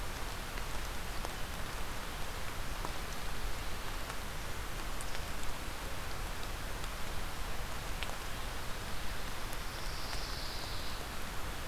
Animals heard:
Pine Warbler (Setophaga pinus)

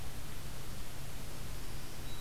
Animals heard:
Black-throated Green Warbler (Setophaga virens)

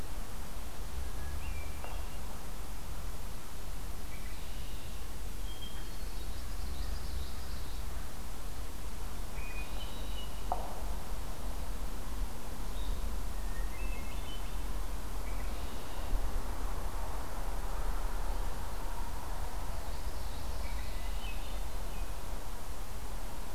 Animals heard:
Red-winged Blackbird (Agelaius phoeniceus), Common Yellowthroat (Geothlypis trichas), Hermit Thrush (Catharus guttatus)

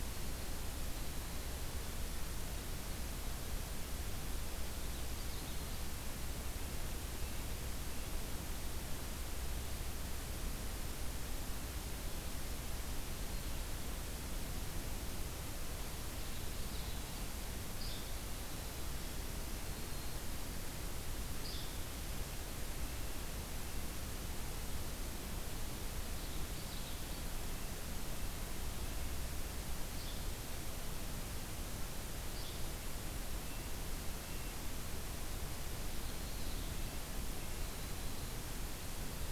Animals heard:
Yellow-bellied Flycatcher (Empidonax flaviventris), Winter Wren (Troglodytes hiemalis), Common Yellowthroat (Geothlypis trichas), Black-throated Green Warbler (Setophaga virens), Red-breasted Nuthatch (Sitta canadensis)

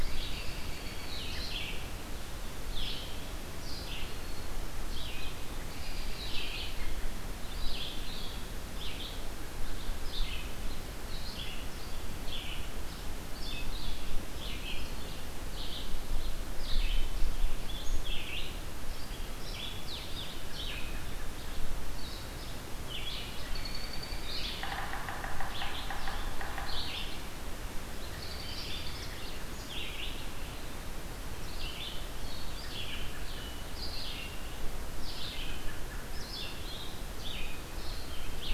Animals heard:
Red-eyed Vireo (Vireo olivaceus), Black-throated Green Warbler (Setophaga virens), American Robin (Turdus migratorius), Yellow-bellied Sapsucker (Sphyrapicus varius), Blue-headed Vireo (Vireo solitarius)

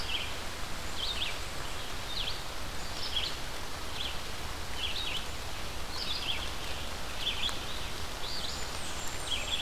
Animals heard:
Red-eyed Vireo (Vireo olivaceus), Black-and-white Warbler (Mniotilta varia), Blackburnian Warbler (Setophaga fusca)

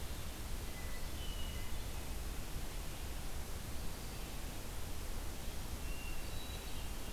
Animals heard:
Hermit Thrush (Catharus guttatus)

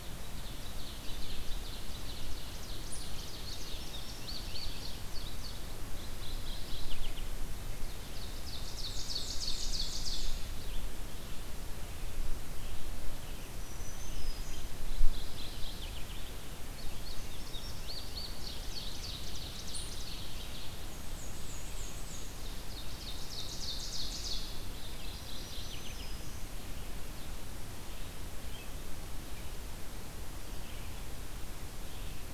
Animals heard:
Ovenbird (Seiurus aurocapilla), Mourning Warbler (Geothlypis philadelphia), Black-and-white Warbler (Mniotilta varia), Red-eyed Vireo (Vireo olivaceus), Indigo Bunting (Passerina cyanea), Black-throated Green Warbler (Setophaga virens)

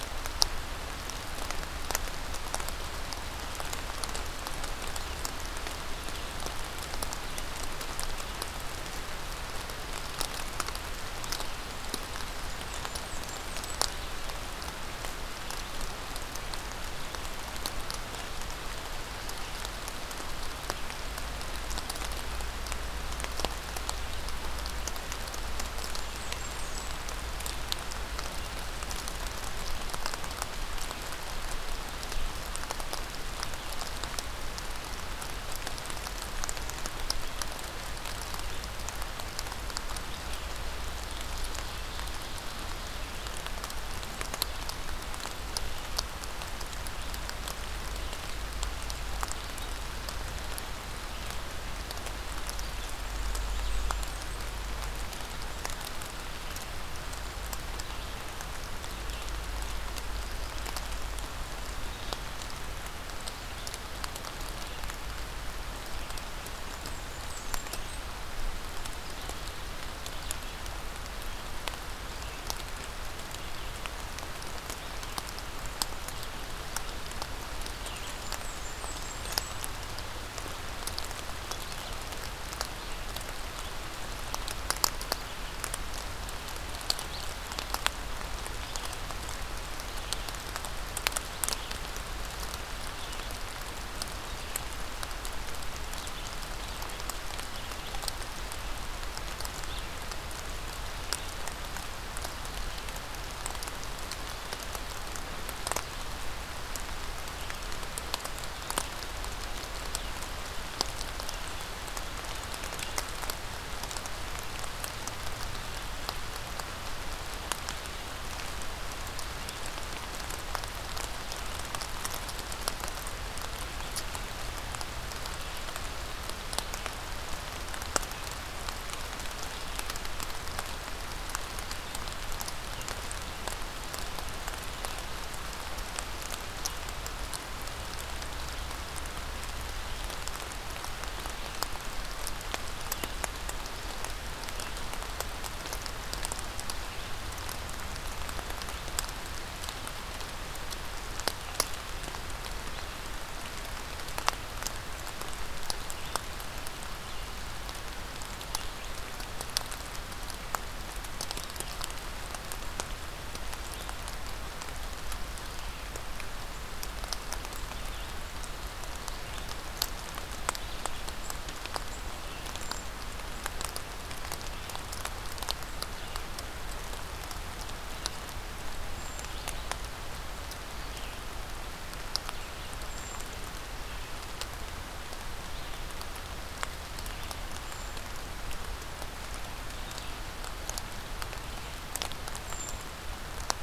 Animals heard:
Blackburnian Warbler (Setophaga fusca), Brown Creeper (Certhia americana)

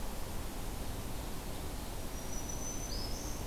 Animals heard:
Black-throated Green Warbler (Setophaga virens)

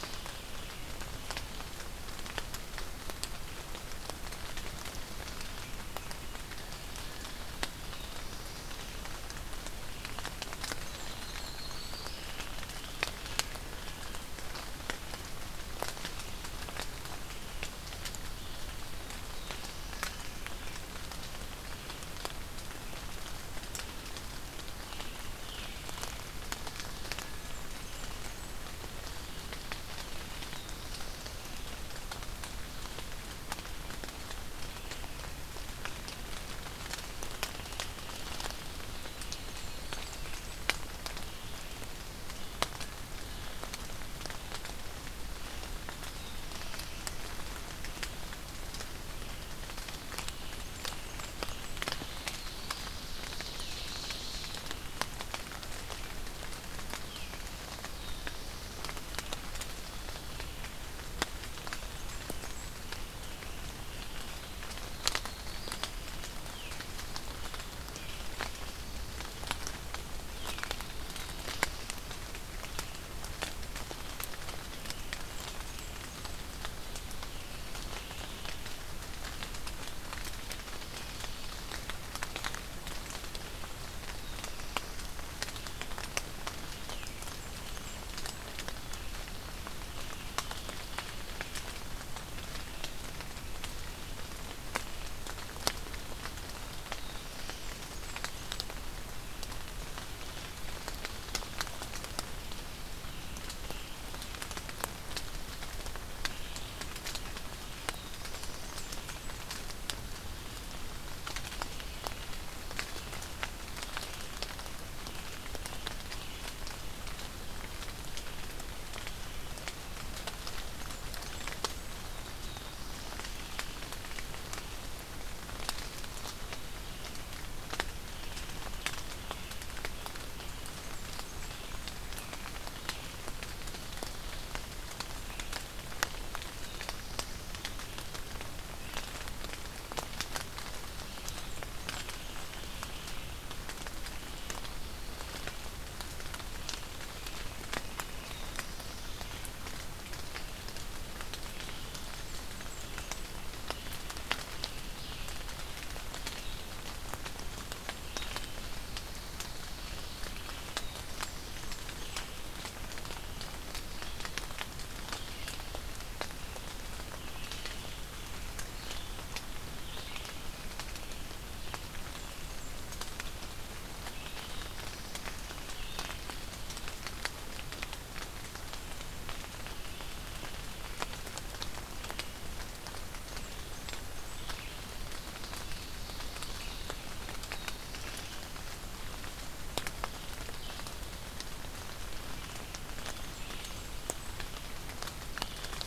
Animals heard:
Blackburnian Warbler (Setophaga fusca), Red-eyed Vireo (Vireo olivaceus), Yellow-rumped Warbler (Setophaga coronata), Black-throated Blue Warbler (Setophaga caerulescens), Ovenbird (Seiurus aurocapilla)

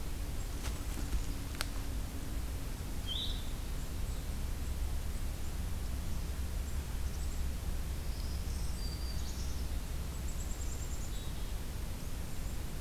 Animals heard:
Black-capped Chickadee (Poecile atricapillus), Blue-headed Vireo (Vireo solitarius)

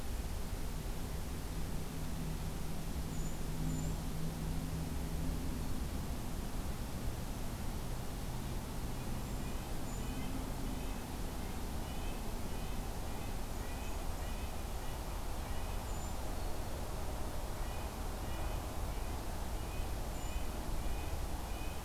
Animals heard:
Red-breasted Nuthatch (Sitta canadensis), Brown Creeper (Certhia americana)

